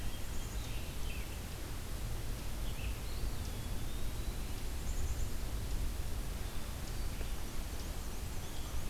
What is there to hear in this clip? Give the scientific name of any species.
Vireo olivaceus, Poecile atricapillus, Contopus virens, Mniotilta varia